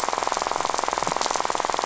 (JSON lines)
{"label": "biophony, rattle", "recorder": "SoundTrap 500"}